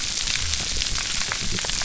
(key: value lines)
label: biophony
recorder: SoundTrap 300